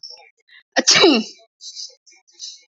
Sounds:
Sneeze